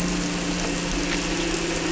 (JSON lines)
{"label": "anthrophony, boat engine", "recorder": "SoundTrap 300"}